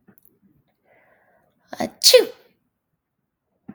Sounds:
Sneeze